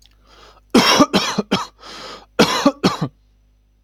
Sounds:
Cough